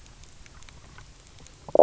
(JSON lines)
{"label": "biophony, knock croak", "recorder": "SoundTrap 300"}